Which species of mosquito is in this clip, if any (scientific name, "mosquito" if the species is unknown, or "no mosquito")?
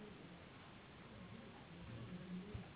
Anopheles gambiae s.s.